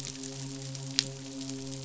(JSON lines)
{"label": "biophony, midshipman", "recorder": "SoundTrap 500"}